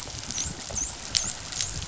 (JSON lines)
{"label": "biophony, dolphin", "recorder": "SoundTrap 500"}